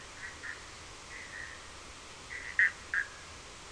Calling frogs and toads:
Boana bischoffi
12:30am

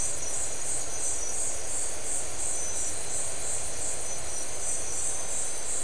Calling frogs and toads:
none
midnight

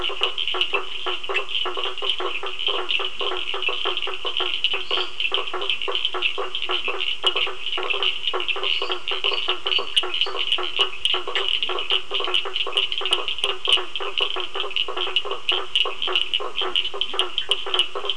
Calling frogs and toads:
Boana faber, Sphaenorhynchus surdus, Dendropsophus minutus, Leptodactylus latrans
~8pm

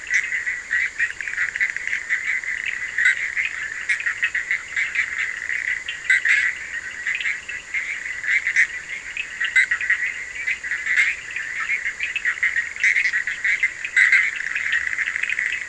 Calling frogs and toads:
Boana bischoffi
3am

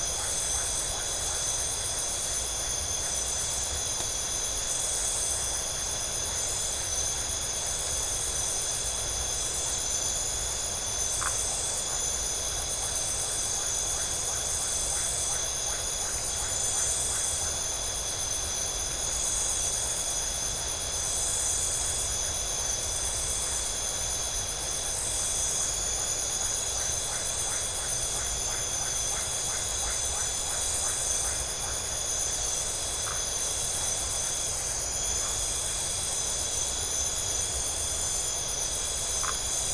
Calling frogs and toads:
Phyllomedusa distincta, Leptodactylus notoaktites
12:30am

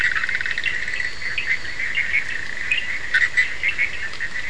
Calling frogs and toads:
Boana bischoffi, Sphaenorhynchus surdus
4am

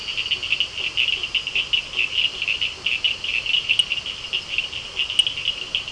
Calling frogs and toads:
Boana faber, Elachistocleis bicolor, Sphaenorhynchus surdus
7:30pm

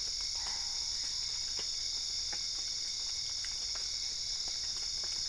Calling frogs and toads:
Boana albopunctata
10:30pm

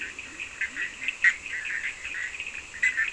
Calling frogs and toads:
Boana bischoffi, Leptodactylus latrans, Sphaenorhynchus surdus
~2am

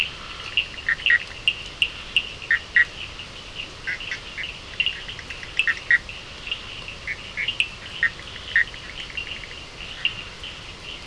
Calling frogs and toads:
Scinax perereca, Sphaenorhynchus surdus, Boana bischoffi, Leptodactylus latrans
~10pm

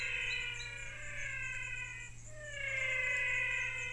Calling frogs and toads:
Physalaemus albonotatus
6pm

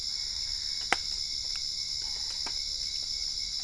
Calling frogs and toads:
Boana albopunctata
~8pm

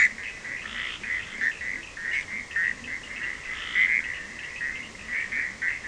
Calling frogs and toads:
Boana bischoffi, Sphaenorhynchus surdus
1:30am

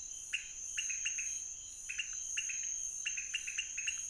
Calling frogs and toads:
Leptodactylus podicipinus
12:30am

